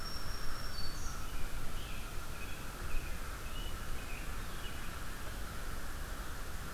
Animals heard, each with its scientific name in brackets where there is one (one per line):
American Robin (Turdus migratorius)
American Crow (Corvus brachyrhynchos)
Black-throated Green Warbler (Setophaga virens)